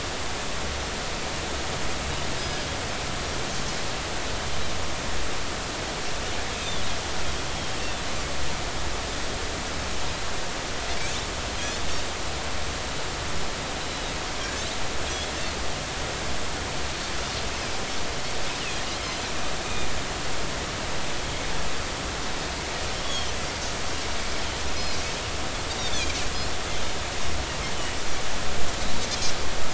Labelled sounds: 2.4	2.7	Pacific white-sided dolphin, 5.0 to 5.1 kHz
19.6	19.9	Pacific white-sided dolphin, 3.5 to 3.8 kHz
23.0	23.3	Pacific white-sided dolphin, 3.0 to 3.5 kHz
25.8	26.1	Pacific white-sided dolphin, 3.1 to 3.9 kHz

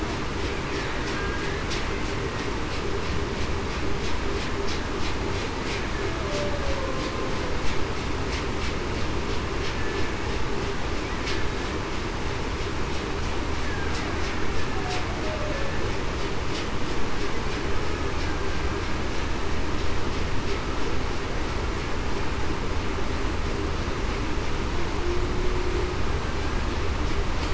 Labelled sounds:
6.0	6.5	humpback whale, 0.56 to 0.68 kHz
15.2	15.7	humpback whale, 0.52 to 0.63 kHz

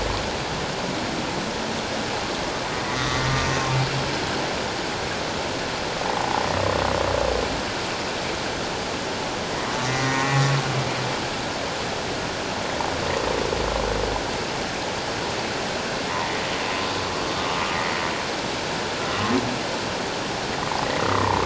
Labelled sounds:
2.8	3.2	humpback whale, 1.1 to 2.1 kHz
6.2	6.4	humpback whale, 0.78 to 1.1 kHz
10.0	10.4	humpback whale, 1.0 to 2.0 kHz
21.0	21.4	humpback whale, 0.81 to 1.4 kHz

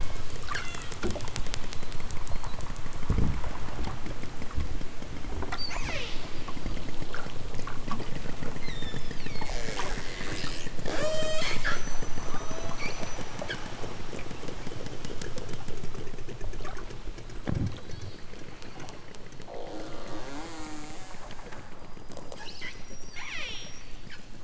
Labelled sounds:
0.4	0.9	killer whale, southern Alaska resident, 0.83 to 8.0 kHz
5.5	6.2	killer whale, southern Alaska resident, 0.60 to 8.0 kHz
8.6	9.5	killer whale, southern Alaska resident, 0.69 to 7.8 kHz
10.9	11.7	killer whale, southern Alaska resident, 0.32 to 8.0 kHz
12.2	12.8	killer whale, southern Alaska resident, 0.37 to 4.4 kHz
17.9	18.3	killer whale, southern Alaska resident, 1.4 to 5.3 kHz
22.9	23.8	killer whale, southern Alaska resident, 0.28 to 8.0 kHz

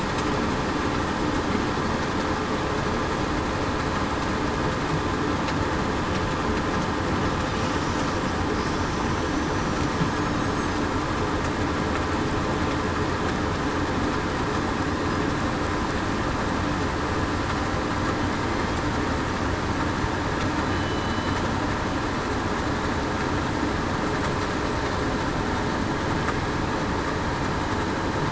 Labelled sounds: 20.7	21.3	killer whale, southern resident, 2.9 to 3.0 kHz

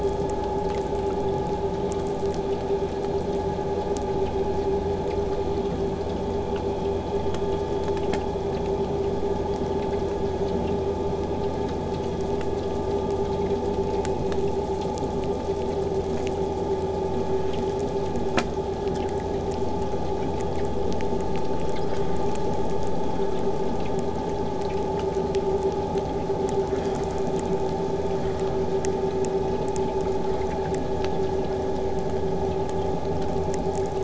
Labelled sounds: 0.0	3.5	killer whale, southern resident, 4.2 to 8.0 kHz

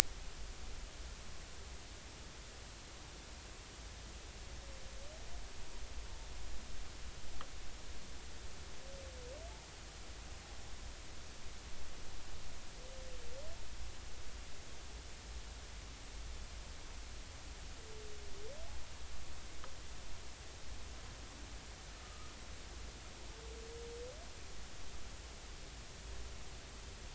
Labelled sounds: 22.0	22.3	humpback whale, 1.2 to 1.3 kHz

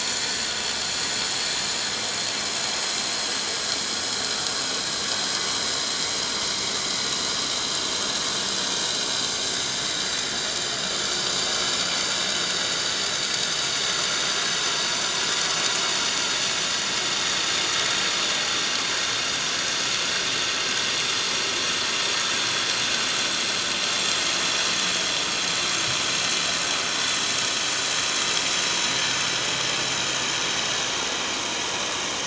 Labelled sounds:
0.8	1.2	vessel noise, 6.4 to 6.7 kHz
8.1	8.4	vessel noise, 6.0 to 6.2 kHz
10.4	10.6	vessel noise, 4.4 to 4.8 kHz
13.8	14.3	vessel noise, 5.1 to 6.1 kHz
14.7	15.5	vessel noise, 5.6 to 5.8 kHz
16.9	17.5	vessel noise, 5.5 to 5.7 kHz
25.7	26.0	vessel noise, 7.0 to 7.3 kHz

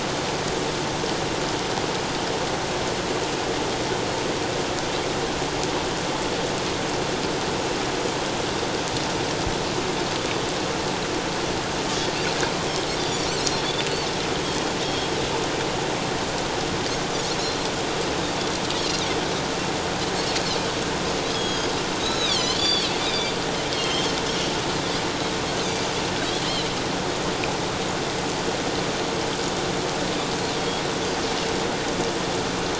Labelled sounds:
13.0	13.7	Pacific white-sided dolphin, 3.4 to 5.9 kHz
14.8	15.1	Pacific white-sided dolphin, 3.2 to 3.3 kHz
17.4	17.7	Pacific white-sided dolphin, 3.9 to 4.3 kHz
18.8	19.0	Pacific white-sided dolphin, 4.1 to 4.5 kHz
21.3	23.3	Pacific white-sided dolphin, 2.2 to 7.1 kHz
23.7	24.1	Pacific white-sided dolphin, 2.9 to 4.3 kHz
30.6	30.8	Pacific white-sided dolphin, 3.2 to 3.4 kHz

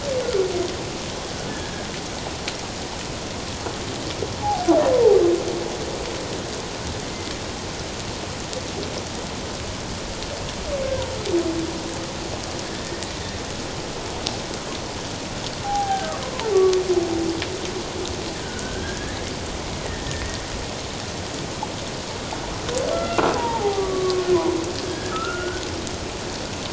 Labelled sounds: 1.5	1.9	humpback whale, 1.6 to 1.8 kHz
4.4	4.7	humpback whale, 0.78 to 0.91 kHz
15.6	16.1	humpback whale, 0.78 to 1.7 kHz
16.5	16.8	humpback whale, 1.1 to 1.2 kHz
18.4	20.4	humpback whale, 1.4 to 2.0 kHz
22.9	24.3	humpback whale, 0.78 to 2.1 kHz
24.8	25.6	humpback whale, 1.2 to 1.8 kHz

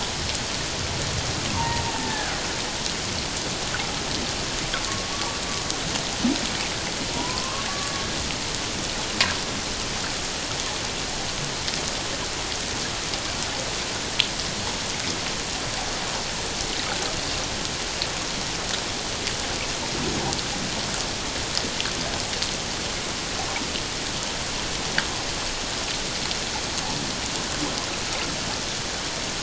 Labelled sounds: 1.5	2.4	killer whale, Bigg's (transient), 0.88 to 1.8 kHz
5.1	5.4	killer whale, Bigg's (transient), 1.1 to 1.2 kHz
7.1	8.0	killer whale, Bigg's (transient), 0.91 to 1.8 kHz

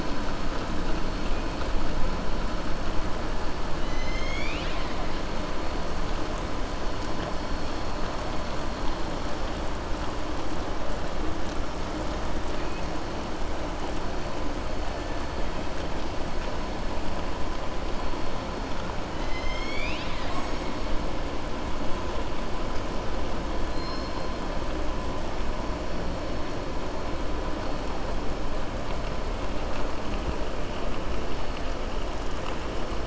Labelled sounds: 19.1	20.7	killer whale, southern resident, 1.1 to 7.7 kHz

